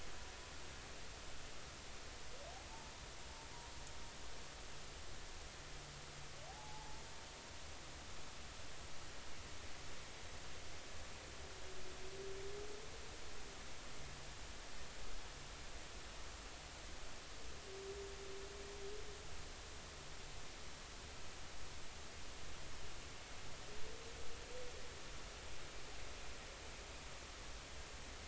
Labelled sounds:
6.5	7.0	humpback whale, 0.80 to 0.99 kHz

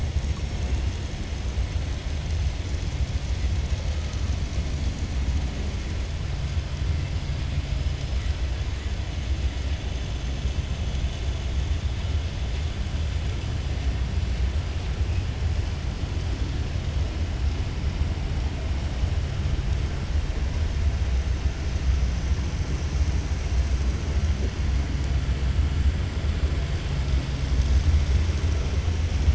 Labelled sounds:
0.2	0.7	killer whale, 4.6 to 6.5 kHz

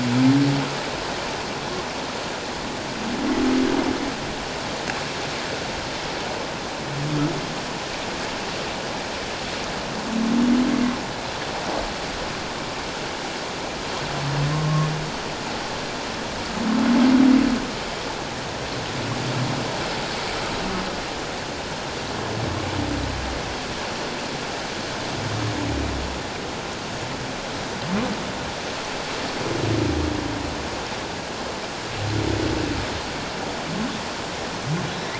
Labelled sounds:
14.5	14.9	humpback whale, 1.0 to 1.2 kHz

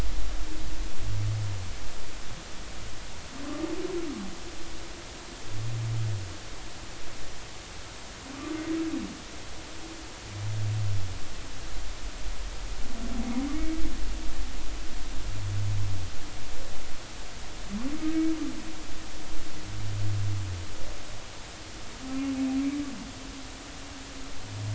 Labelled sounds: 8.3	8.6	humpback whale, 1.1 to 1.2 kHz

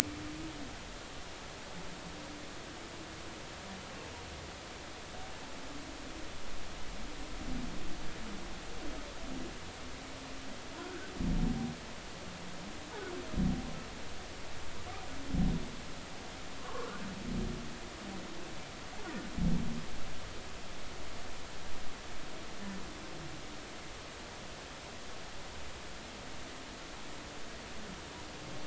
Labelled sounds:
10.8	11.1	humpback whale, 1.3 to 1.7 kHz
16.6	16.9	humpback whale, 0.99 to 1.2 kHz

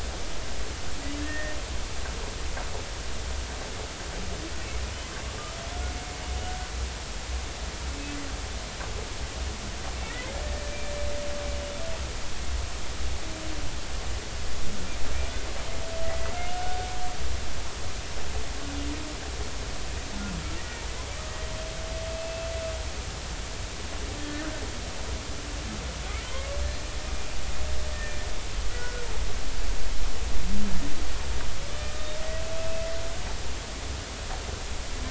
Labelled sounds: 1.2	1.6	humpback whale, 1.7 to 2.0 kHz
10.1	10.9	humpback whale, 1.8 to 2.4 kHz
16.0	16.3	humpback whale, 1.9 to 2.0 kHz
20.6	20.8	humpback whale, 1.8 to 2.0 kHz
22.1	22.5	humpback whale, 2.6 to 2.7 kHz
24.2	24.6	humpback whale, 1.4 to 1.9 kHz
28.7	29.0	humpback whale, 1.4 to 2.0 kHz

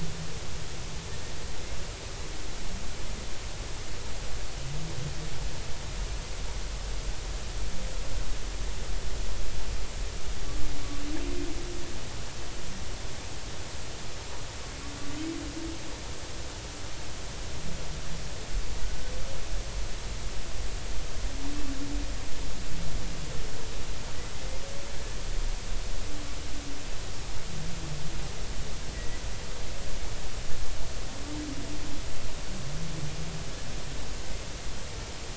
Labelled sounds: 28.9	29.2	humpback whale, 1.9 to 2.0 kHz

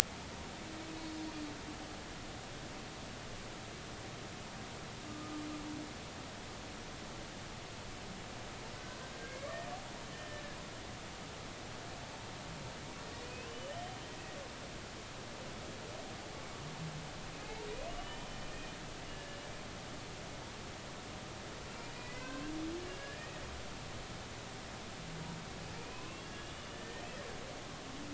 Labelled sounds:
0.9	1.2	humpback whale, 4.4 to 4.5 kHz
5.0	5.4	humpback whale, 1.2 to 1.3 kHz
9.1	9.5	humpback whale, 1.5 to 2.3 kHz
10.1	10.6	humpback whale, 1.6 to 1.9 kHz
13.2	13.7	humpback whale, 2.4 to 3.0 kHz
17.3	17.6	humpback whale, 2.5 to 2.7 kHz
18.0	19.4	humpback whale, 1.7 to 3.1 kHz
21.9	23.4	humpback whale, 0.96 to 2.9 kHz
25.7	27.0	humpback whale, 0.96 to 3.6 kHz

